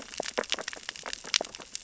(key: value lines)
label: biophony, sea urchins (Echinidae)
recorder: SoundTrap 600 or HydroMoth